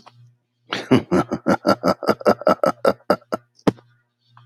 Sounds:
Laughter